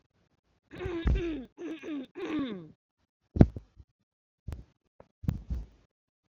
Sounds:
Throat clearing